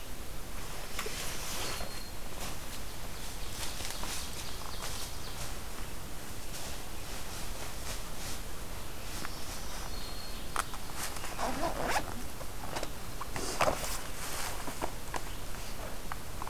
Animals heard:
Black-throated Green Warbler (Setophaga virens), Ovenbird (Seiurus aurocapilla)

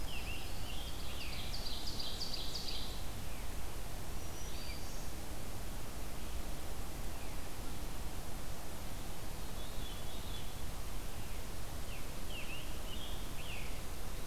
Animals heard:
Veery (Catharus fuscescens), Red-eyed Vireo (Vireo olivaceus), Black-throated Green Warbler (Setophaga virens), Ovenbird (Seiurus aurocapilla), Scarlet Tanager (Piranga olivacea)

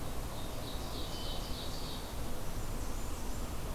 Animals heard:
Ovenbird (Seiurus aurocapilla), Hermit Thrush (Catharus guttatus), Blackburnian Warbler (Setophaga fusca)

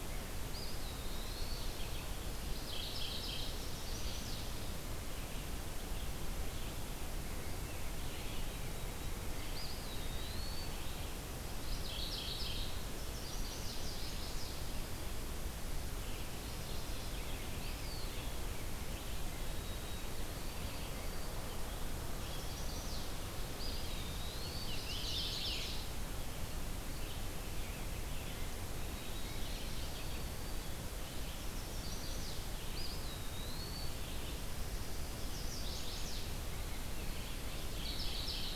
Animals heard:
Rose-breasted Grosbeak (Pheucticus ludovicianus), Red-eyed Vireo (Vireo olivaceus), Scarlet Tanager (Piranga olivacea), Eastern Wood-Pewee (Contopus virens), Mourning Warbler (Geothlypis philadelphia), White-throated Sparrow (Zonotrichia albicollis), Chestnut-sided Warbler (Setophaga pensylvanica)

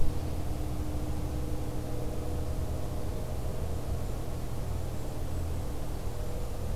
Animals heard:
Golden-crowned Kinglet (Regulus satrapa)

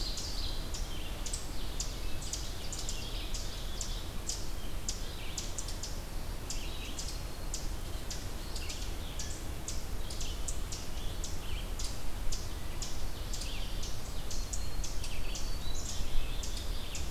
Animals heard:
Black-capped Chickadee (Poecile atricapillus), Red-eyed Vireo (Vireo olivaceus), Ovenbird (Seiurus aurocapilla), Black-throated Green Warbler (Setophaga virens)

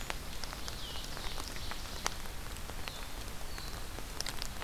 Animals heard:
Ovenbird (Seiurus aurocapilla)

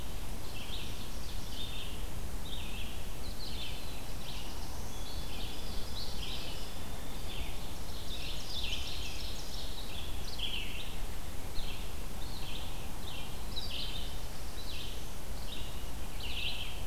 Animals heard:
Red-eyed Vireo (Vireo olivaceus), Black-throated Blue Warbler (Setophaga caerulescens), White-throated Sparrow (Zonotrichia albicollis), Ovenbird (Seiurus aurocapilla)

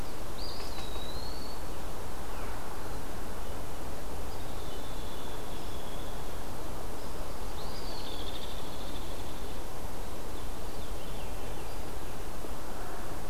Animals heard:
Hairy Woodpecker (Dryobates villosus), Eastern Wood-Pewee (Contopus virens), Veery (Catharus fuscescens)

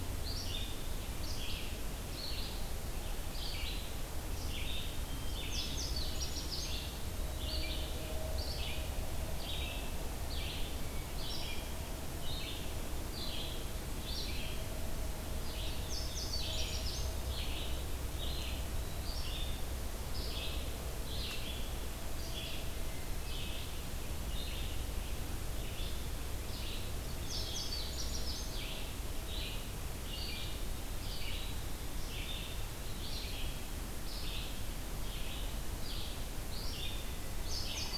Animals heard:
Indigo Bunting (Passerina cyanea), Red-eyed Vireo (Vireo olivaceus), Hermit Thrush (Catharus guttatus)

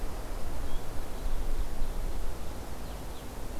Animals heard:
Blue-headed Vireo (Vireo solitarius)

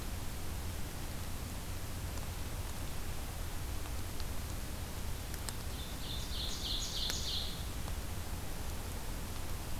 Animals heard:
Ovenbird (Seiurus aurocapilla)

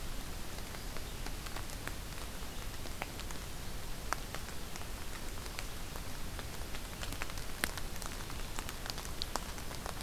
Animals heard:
Red-eyed Vireo (Vireo olivaceus)

